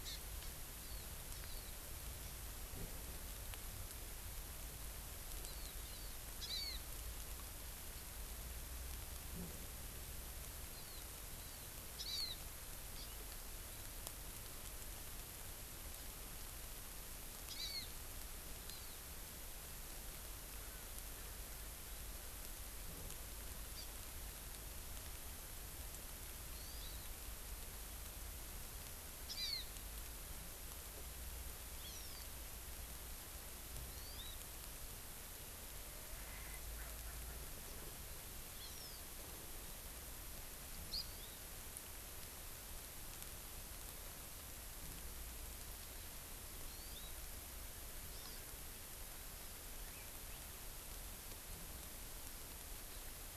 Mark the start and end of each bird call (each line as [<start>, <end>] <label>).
[0.00, 0.20] Hawaii Amakihi (Chlorodrepanis virens)
[5.40, 5.70] Hawaii Amakihi (Chlorodrepanis virens)
[6.50, 6.80] Hawaii Amakihi (Chlorodrepanis virens)
[10.70, 11.00] Hawaii Amakihi (Chlorodrepanis virens)
[11.40, 11.70] Hawaii Amakihi (Chlorodrepanis virens)
[12.00, 12.40] Hawaii Amakihi (Chlorodrepanis virens)
[12.90, 13.10] Hawaii Amakihi (Chlorodrepanis virens)
[17.50, 17.90] Hawaii Amakihi (Chlorodrepanis virens)
[18.70, 19.00] Hawaii Amakihi (Chlorodrepanis virens)
[23.70, 23.90] Hawaii Amakihi (Chlorodrepanis virens)
[26.60, 27.10] Hawaii Amakihi (Chlorodrepanis virens)
[29.40, 29.70] Hawaii Amakihi (Chlorodrepanis virens)
[31.80, 32.20] Hawaii Amakihi (Chlorodrepanis virens)
[33.90, 34.40] Hawaii Amakihi (Chlorodrepanis virens)
[36.20, 37.90] Erckel's Francolin (Pternistis erckelii)
[38.60, 39.00] Hawaii Amakihi (Chlorodrepanis virens)
[46.70, 47.10] Hawaii Amakihi (Chlorodrepanis virens)
[48.10, 48.40] Hawaii Amakihi (Chlorodrepanis virens)